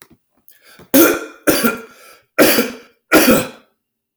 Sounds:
Cough